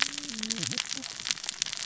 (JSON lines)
{"label": "biophony, cascading saw", "recorder": "SoundTrap 600 or HydroMoth"}